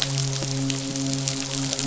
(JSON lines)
{"label": "biophony, midshipman", "recorder": "SoundTrap 500"}